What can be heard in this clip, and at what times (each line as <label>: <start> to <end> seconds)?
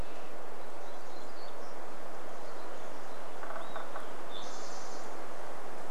warbler song: 0 to 2 seconds
Olive-sided Flycatcher song: 2 to 4 seconds
woodpecker drumming: 2 to 4 seconds
Spotted Towhee song: 4 to 6 seconds